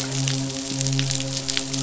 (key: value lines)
label: biophony, midshipman
recorder: SoundTrap 500